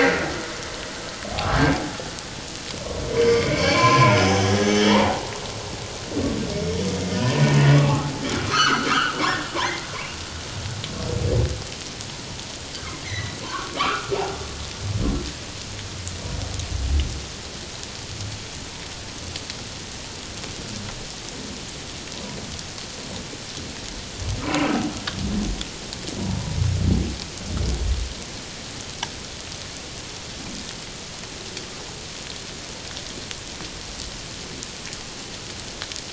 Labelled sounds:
1.3	1.6	humpback whale, 0.78 to 0.88 kHz
3.2	4.2	humpback whale, 0.84 to 4.6 kHz
4.7	5.3	humpback whale, 0.78 to 3.4 kHz
7.2	10.2	humpback whale, 0.78 to 6.2 kHz
13.0	14.2	humpback whale, 0.88 to 4.2 kHz
24.4	24.7	humpback whale, 0.94 to 1.3 kHz

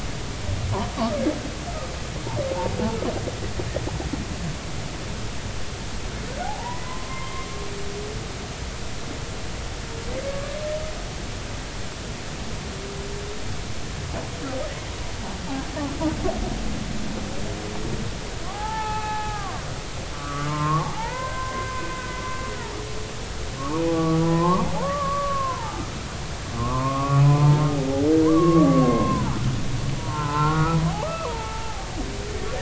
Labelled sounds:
6.4	7.5	humpback whale, 0.80 to 2.1 kHz
18.5	21.9	humpback whale, 0.80 to 2.7 kHz
23.8	25.9	humpback whale, 0.80 to 1.4 kHz
26.6	27.5	humpback whale, 0.90 to 1.3 kHz
28.2	31.9	humpback whale, 0.80 to 1.6 kHz

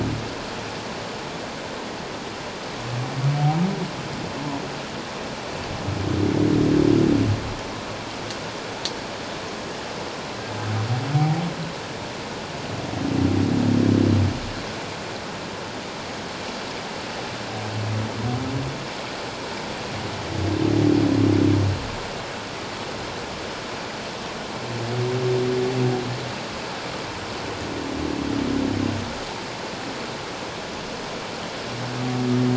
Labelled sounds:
11.1	11.4	humpback whale, 0.78 to 0.88 kHz

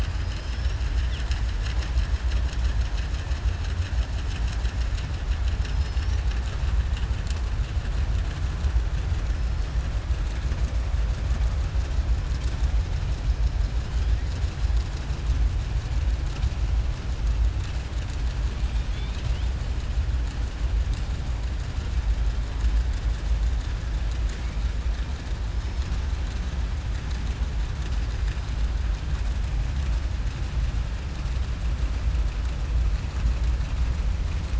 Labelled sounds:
18.6	19.5	killer whale, southern resident, 2.1 to 4.5 kHz

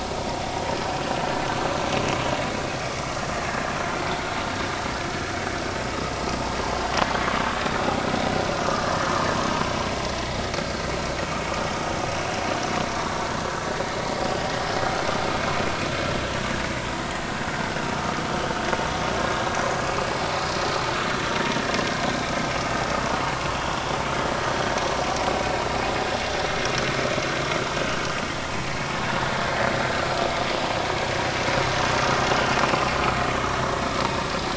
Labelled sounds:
3.5	3.8	vessel noise, 1.6 to 1.9 kHz
8.8	9.1	vessel noise, 1.6 to 1.9 kHz
19.2	19.4	vessel noise, 1.6 to 1.7 kHz

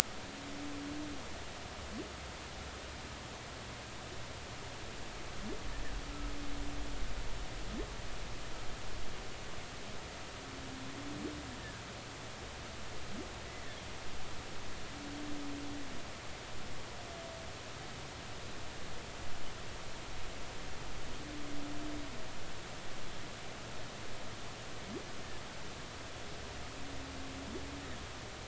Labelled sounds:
11.6	11.8	humpback whale, 1.5 to 1.9 kHz
13.5	13.8	humpback whale, 1.7 to 2.1 kHz

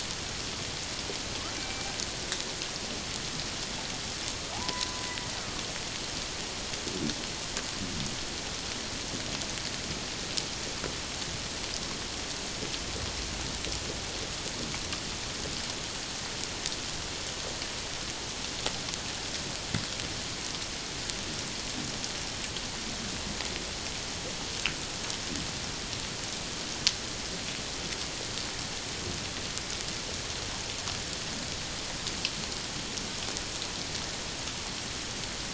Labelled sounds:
1.6	1.9	killer whale, Bigg's (transient), call T01, 2.3 to 2.4 kHz
4.5	5.0	killer whale, Bigg's (transient), call T02, 0.78 to 1.1 kHz

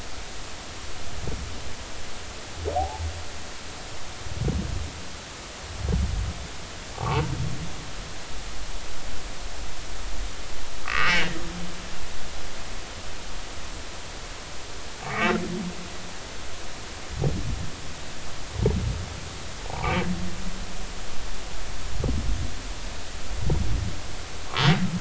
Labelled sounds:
2.7	3.1	humpback whale, 0.80 to 0.93 kHz
6.9	7.3	humpback whale, 0.80 to 1.2 kHz
10.8	11.3	humpback whale, 1.1 to 3.0 kHz
15.0	15.4	humpback whale, 1.1 to 2.4 kHz
19.6	19.9	humpback whale, 0.80 to 0.99 kHz

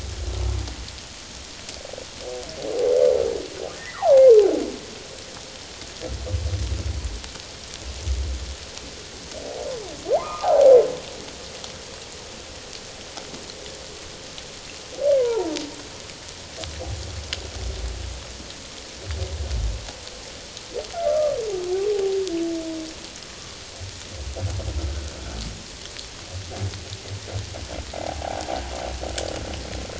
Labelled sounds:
3.7	4.3	humpback whale, 0.78 to 2.1 kHz
10.1	10.8	humpback whale, 0.78 to 1.4 kHz
15.2	15.6	humpback whale, 0.84 to 1.1 kHz
21.1	21.4	humpback whale, 1.1 to 1.4 kHz
27.9	28.5	humpback whale, 0.78 to 0.91 kHz

